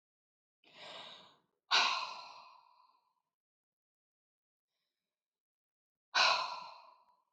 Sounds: Sigh